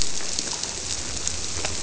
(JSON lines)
{"label": "biophony", "recorder": "SoundTrap 300"}